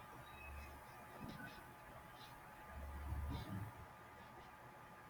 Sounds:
Sniff